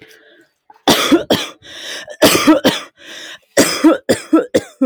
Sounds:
Cough